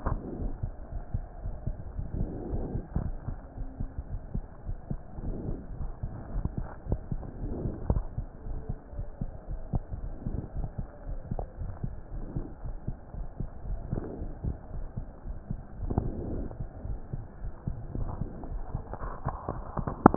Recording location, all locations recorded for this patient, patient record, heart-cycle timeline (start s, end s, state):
aortic valve (AV)
aortic valve (AV)+pulmonary valve (PV)+tricuspid valve (TV)+mitral valve (MV)
#Age: Child
#Sex: Female
#Height: 137.0 cm
#Weight: 31.4 kg
#Pregnancy status: False
#Murmur: Absent
#Murmur locations: nan
#Most audible location: nan
#Systolic murmur timing: nan
#Systolic murmur shape: nan
#Systolic murmur grading: nan
#Systolic murmur pitch: nan
#Systolic murmur quality: nan
#Diastolic murmur timing: nan
#Diastolic murmur shape: nan
#Diastolic murmur grading: nan
#Diastolic murmur pitch: nan
#Diastolic murmur quality: nan
#Outcome: Abnormal
#Campaign: 2015 screening campaign
0.00	0.91	unannotated
0.91	1.02	S1
1.02	1.10	systole
1.10	1.26	S2
1.26	1.42	diastole
1.42	1.56	S1
1.56	1.66	systole
1.66	1.76	S2
1.76	1.96	diastole
1.96	2.08	S1
2.08	2.18	systole
2.18	2.32	S2
2.32	2.50	diastole
2.50	2.64	S1
2.64	2.74	systole
2.74	2.84	S2
2.84	3.00	diastole
3.00	3.16	S1
3.16	3.28	systole
3.28	3.40	S2
3.40	3.58	diastole
3.58	3.68	S1
3.68	3.80	systole
3.80	3.90	S2
3.90	4.12	diastole
4.12	4.22	S1
4.22	4.34	systole
4.34	4.48	S2
4.48	4.66	diastole
4.66	4.78	S1
4.78	4.90	systole
4.90	5.00	S2
5.00	5.18	diastole
5.18	5.34	S1
5.34	5.46	systole
5.46	5.60	S2
5.60	5.78	diastole
5.78	5.92	S1
5.92	6.02	systole
6.02	6.14	S2
6.14	6.30	diastole
6.30	6.42	S1
6.42	6.56	systole
6.56	6.68	S2
6.68	6.88	diastole
6.88	7.00	S1
7.00	7.10	systole
7.10	7.22	S2
7.22	7.40	diastole
7.40	7.54	S1
7.54	7.64	systole
7.64	7.74	S2
7.74	7.88	diastole
7.88	8.06	S1
8.06	8.16	systole
8.16	8.26	S2
8.26	8.46	diastole
8.46	8.62	S1
8.62	8.70	systole
8.70	8.78	S2
8.78	8.96	diastole
8.96	9.06	S1
9.06	9.20	systole
9.20	9.30	S2
9.30	9.49	diastole
9.49	9.62	S1
9.62	9.70	systole
9.70	9.84	S2
9.84	10.02	diastole
10.02	10.16	S1
10.16	10.26	systole
10.26	10.40	S2
10.40	10.56	diastole
10.56	10.70	S1
10.70	10.80	systole
10.80	10.88	S2
10.88	11.08	diastole
11.08	11.20	S1
11.20	11.30	systole
11.30	11.44	S2
11.44	11.60	diastole
11.60	11.74	S1
11.74	11.84	systole
11.84	11.96	S2
11.96	12.14	diastole
12.14	12.24	S1
12.24	12.34	systole
12.34	12.46	S2
12.46	12.64	diastole
12.64	12.76	S1
12.76	12.88	systole
12.88	12.96	S2
12.96	13.18	diastole
13.18	13.28	S1
13.28	13.40	systole
13.40	13.50	S2
13.50	13.68	diastole
13.68	13.82	S1
13.82	13.92	systole
13.92	14.04	S2
14.04	14.22	diastole
14.22	14.32	S1
14.32	14.44	systole
14.44	14.56	S2
14.56	14.74	diastole
14.74	14.88	S1
14.88	14.98	systole
14.98	15.06	S2
15.06	15.28	diastole
15.28	15.38	S1
15.38	15.50	systole
15.50	15.60	S2
15.60	15.80	diastole
15.80	15.91	S1
15.91	20.16	unannotated